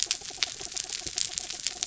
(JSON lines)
{"label": "anthrophony, mechanical", "recorder": "SoundTrap 300"}